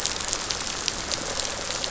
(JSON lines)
{"label": "biophony, rattle response", "recorder": "SoundTrap 500"}